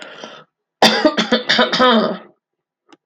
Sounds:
Throat clearing